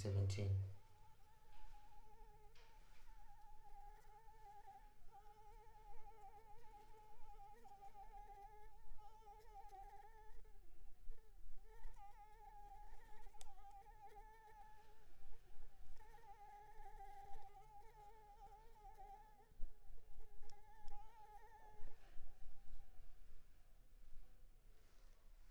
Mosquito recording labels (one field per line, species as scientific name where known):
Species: Anopheles arabiensis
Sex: female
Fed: unfed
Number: one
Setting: cup